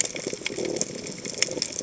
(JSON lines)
{"label": "biophony", "recorder": "HydroMoth"}